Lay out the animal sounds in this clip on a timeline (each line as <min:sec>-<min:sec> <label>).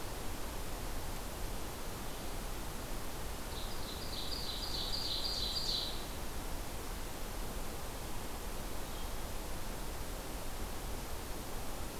0:03.5-0:06.1 Ovenbird (Seiurus aurocapilla)